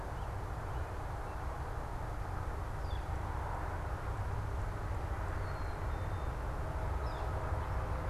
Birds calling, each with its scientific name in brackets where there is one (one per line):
American Robin (Turdus migratorius)
Northern Flicker (Colaptes auratus)